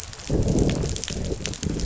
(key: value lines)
label: biophony, growl
recorder: SoundTrap 500